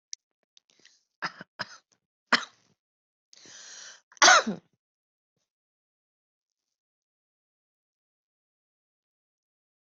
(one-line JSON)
{"expert_labels": [{"quality": "ok", "cough_type": "dry", "dyspnea": false, "wheezing": false, "stridor": false, "choking": false, "congestion": false, "nothing": true, "diagnosis": "healthy cough", "severity": "pseudocough/healthy cough"}], "age": 59, "gender": "female", "respiratory_condition": false, "fever_muscle_pain": false, "status": "symptomatic"}